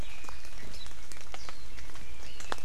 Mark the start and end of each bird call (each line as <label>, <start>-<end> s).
Warbling White-eye (Zosterops japonicus), 0.7-0.9 s
Warbling White-eye (Zosterops japonicus), 1.4-1.7 s
Red-billed Leiothrix (Leiothrix lutea), 1.7-2.6 s